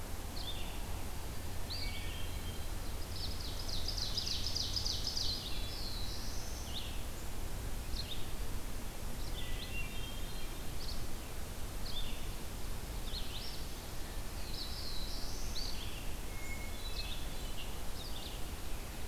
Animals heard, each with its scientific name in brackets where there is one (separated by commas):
Black-throated Blue Warbler (Setophaga caerulescens), Ovenbird (Seiurus aurocapilla), Hermit Thrush (Catharus guttatus), Red-eyed Vireo (Vireo olivaceus)